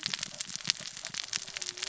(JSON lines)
{"label": "biophony, cascading saw", "recorder": "SoundTrap 600 or HydroMoth"}